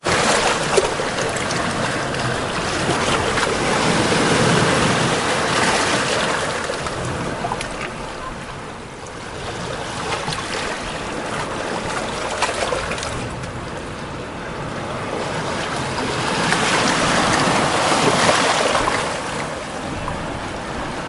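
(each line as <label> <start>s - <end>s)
Waves gently strike stones at the beach, producing a soft sound. 0.0s - 21.1s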